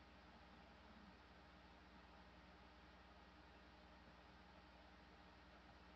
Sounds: Throat clearing